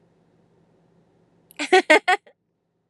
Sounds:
Laughter